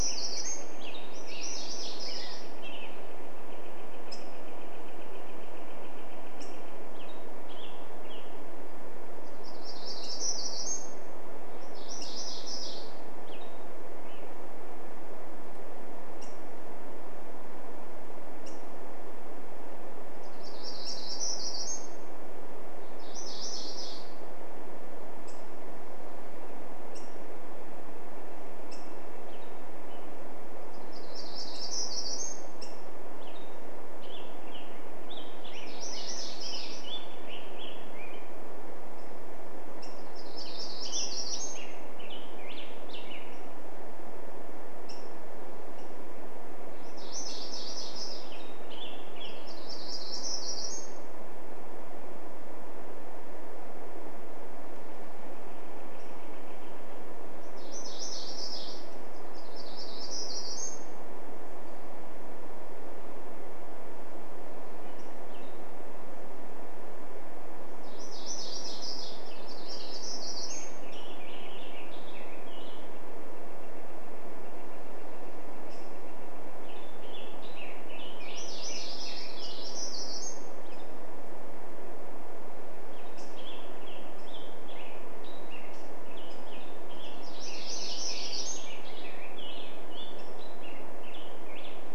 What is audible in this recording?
Hermit Warbler song, Black-headed Grosbeak song, MacGillivray's Warbler song, Northern Flicker call, Black-headed Grosbeak call, unidentified sound